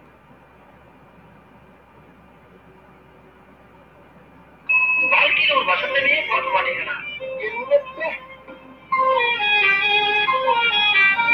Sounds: Throat clearing